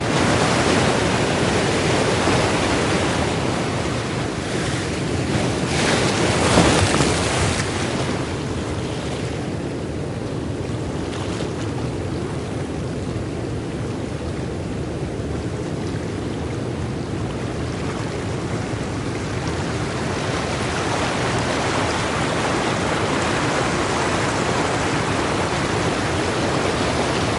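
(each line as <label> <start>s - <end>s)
Ocean waves crashing on the coast. 0.0s - 27.4s
Waves hitting a rock. 5.7s - 7.9s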